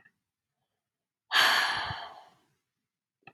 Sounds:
Sigh